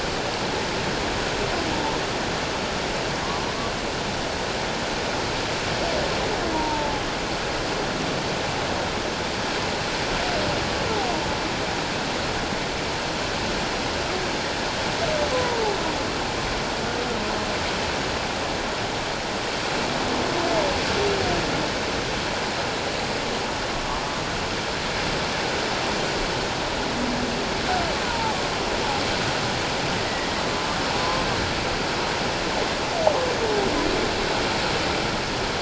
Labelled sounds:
6.5	7.0	humpback whale, 0.78 to 1.0 kHz
15.3	15.8	humpback whale, 0.78 to 1.1 kHz
28.0	28.4	humpback whale, 0.78 to 1.0 kHz
30.1	30.4	humpback whale, 1.8 to 2.0 kHz

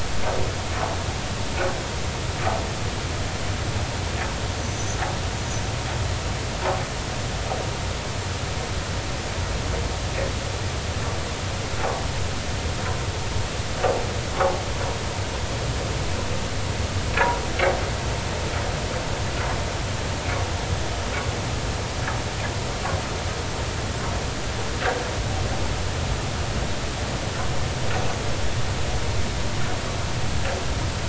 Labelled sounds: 4.6	5.0	vessel noise, 5.9 to 6.8 kHz

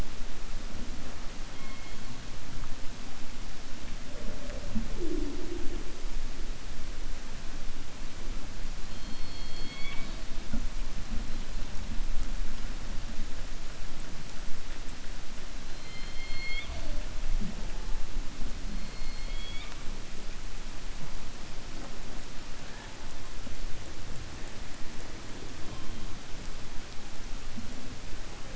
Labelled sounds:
8.8	10.2	killer whale, 0.65 to 4.7 kHz
19.0	19.8	killer whale, 1.1 to 4.5 kHz

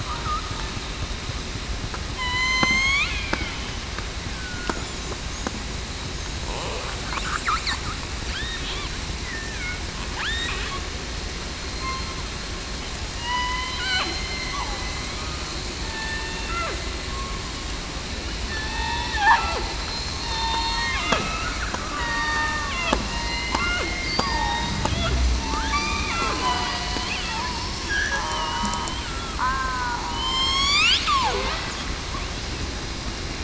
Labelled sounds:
2.1	3.5	killer whale, southern resident, 0.91 to 7.7 kHz
4.3	4.7	killer whale, southern resident, 1.4 to 1.6 kHz
9.2	9.6	killer whale, southern resident, 1.7 to 2.1 kHz
11.7	12.1	killer whale, southern resident, 4.1 to 4.2 kHz
13.1	13.8	killer whale, southern resident, 0.91 to 2.1 kHz
14.1	14.7	killer whale, southern resident, 2.0 to 2.1 kHz
15.8	16.4	killer whale, southern resident, 1.7 to 1.9 kHz
18.5	19.1	killer whale, southern resident, 0.82 to 3.7 kHz
19.8	21.5	killer whale, southern resident, 1.2 to 4.3 kHz
22.0	22.7	killer whale, southern resident, 0.89 to 4.8 kHz
23.1	23.6	killer whale, southern resident, 0.91 to 4.2 kHz
24.2	24.6	killer whale, southern resident, 1.8 to 1.9 kHz
25.4	25.9	killer whale, southern resident, 0.87 to 0.96 kHz
26.2	26.7	killer whale, southern resident, 0.94 to 1.1 kHz
27.3	27.8	killer whale, southern resident, 0.84 to 1.1 kHz
28.2	28.5	killer whale, southern resident, 0.91 to 1.1 kHz
29.0	30.4	killer whale, southern resident, 0.89 to 1.5 kHz

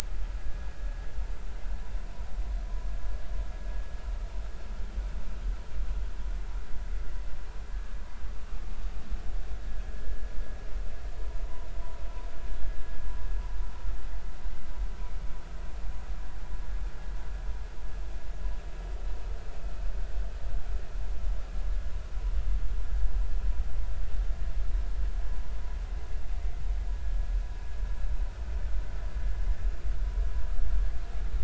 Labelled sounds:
11.4	11.7	vessel noise, 0.86 to 1.1 kHz

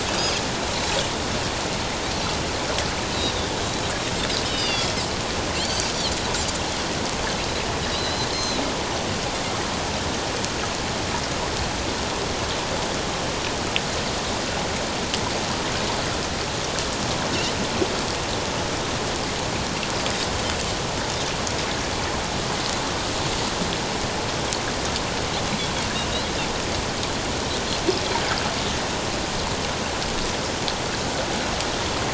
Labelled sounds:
0.2	0.4	Pacific white-sided dolphin, 4.8 to 5.1 kHz
4.4	4.9	Pacific white-sided dolphin, 2.7 to 5.3 kHz
5.5	5.9	Pacific white-sided dolphin, 4.0 to 4.7 kHz
7.9	8.6	Pacific white-sided dolphin, 3.7 to 6.3 kHz

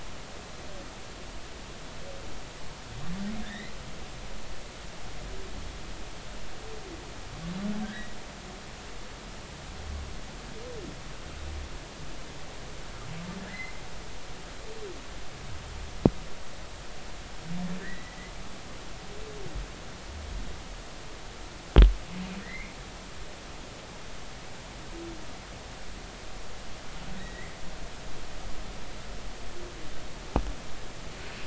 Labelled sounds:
3.4	3.7	humpback whale, 1.6 to 2.1 kHz
7.8	8.1	humpback whale, 1.5 to 2.0 kHz
14.5	14.7	humpback whale, 1.6 to 2.1 kHz
17.8	18.2	humpback whale, 1.7 to 2.0 kHz
22.4	22.7	humpback whale, 1.8 to 2.5 kHz
27.2	27.5	humpback whale, 1.8 to 3.9 kHz

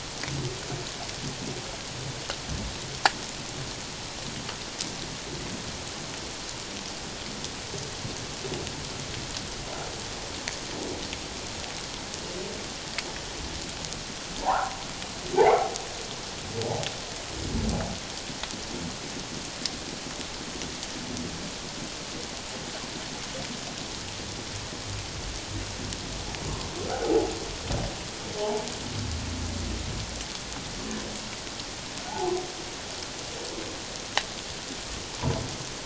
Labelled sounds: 14.4	14.8	humpback whale, 0.78 to 1.2 kHz
15.4	15.7	humpback whale, 0.78 to 2.3 kHz
27.0	27.3	humpback whale, 0.78 to 0.88 kHz
28.4	28.7	humpback whale, 0.81 to 1.1 kHz
32.1	32.3	humpback whale, 0.78 to 0.94 kHz

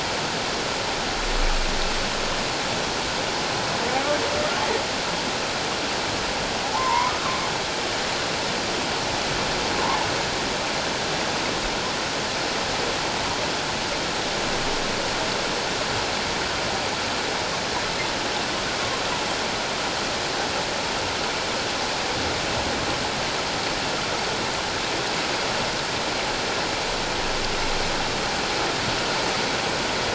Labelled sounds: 6.7	7.1	humpback whale, 0.81 to 1.1 kHz
9.8	10.1	humpback whale, 0.81 to 1.2 kHz

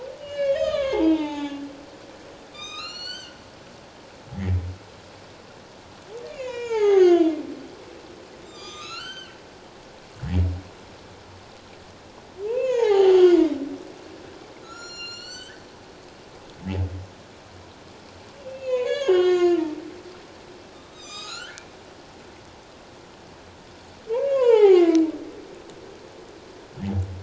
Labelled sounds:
0.2	1.6	humpback whale, 0.78 to 6.5 kHz
2.5	3.4	humpback whale, 1.1 to 7.8 kHz
6.2	7.4	humpback whale, 0.78 to 6.9 kHz
8.4	9.4	humpback whale, 1.1 to 7.6 kHz
12.5	13.4	humpback whale, 0.78 to 7.0 kHz
14.6	15.6	humpback whale, 1.2 to 7.8 kHz
18.5	19.8	humpback whale, 0.94 to 7.0 kHz
20.7	21.6	humpback whale, 1.1 to 7.6 kHz
24.2	25.0	humpback whale, 0.78 to 7.5 kHz

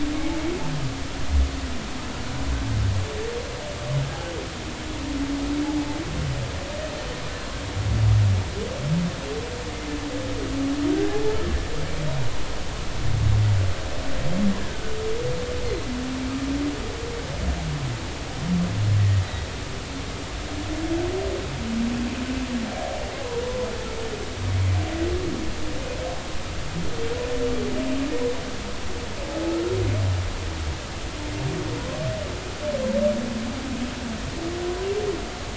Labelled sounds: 11.0	11.4	humpback whale, 0.80 to 0.90 kHz
14.7	14.9	humpback whale, 1.4 to 1.6 kHz
19.2	19.5	humpback whale, 3.7 to 4.0 kHz
29.5	29.7	humpback whale, 1.2 to 1.4 kHz

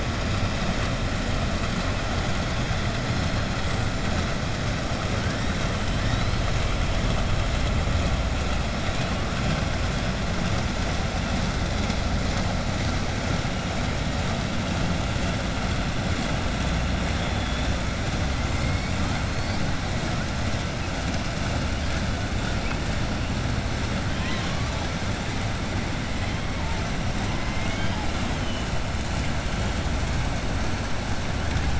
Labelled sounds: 24.1	24.6	killer whale, southern resident, 1.0 to 4.0 kHz
27.3	28.0	killer whale, southern resident, 0.85 to 3.3 kHz

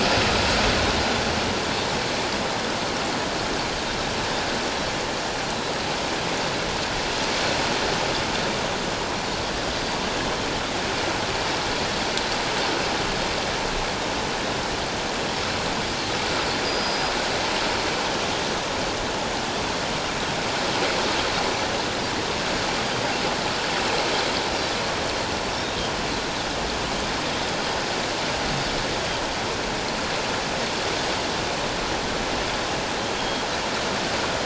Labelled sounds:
16.6	17.1	Pacific white-sided dolphin, 4.8 to 5.0 kHz
33.2	33.5	Pacific white-sided dolphin, 3.1 to 3.3 kHz

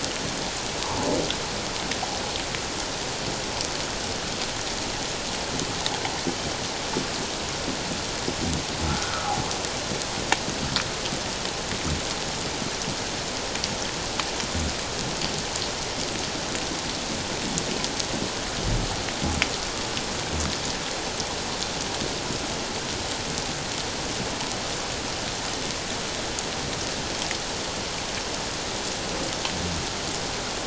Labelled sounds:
0.8	1.1	humpback whale, 0.81 to 1.2 kHz
8.9	9.1	humpback whale, 1.3 to 1.6 kHz

